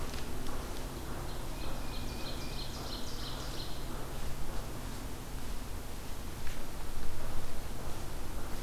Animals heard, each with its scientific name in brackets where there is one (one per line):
Tufted Titmouse (Baeolophus bicolor)
Ovenbird (Seiurus aurocapilla)